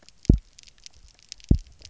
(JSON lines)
{"label": "biophony, double pulse", "recorder": "SoundTrap 300"}